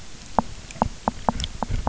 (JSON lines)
{"label": "biophony, knock", "recorder": "SoundTrap 300"}